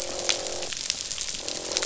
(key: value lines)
label: biophony, croak
recorder: SoundTrap 500